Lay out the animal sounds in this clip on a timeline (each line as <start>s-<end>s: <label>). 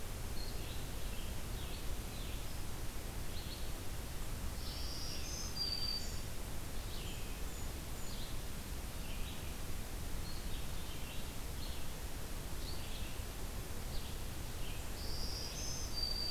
0.0s-16.3s: Red-eyed Vireo (Vireo olivaceus)
4.5s-6.2s: Black-throated Green Warbler (Setophaga virens)
7.0s-8.3s: Golden-crowned Kinglet (Regulus satrapa)
14.8s-16.3s: Black-throated Green Warbler (Setophaga virens)